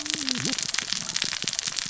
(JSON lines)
{"label": "biophony, cascading saw", "recorder": "SoundTrap 600 or HydroMoth"}